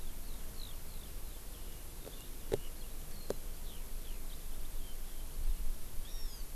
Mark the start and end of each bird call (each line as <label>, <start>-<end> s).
Eurasian Skylark (Alauda arvensis), 0.0-5.7 s
Hawaii Amakihi (Chlorodrepanis virens), 6.0-6.5 s